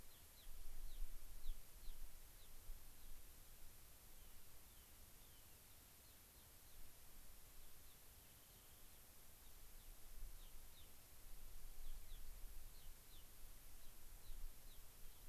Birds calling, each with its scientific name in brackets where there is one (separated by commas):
Rock Wren (Salpinctes obsoletus), Gray-crowned Rosy-Finch (Leucosticte tephrocotis)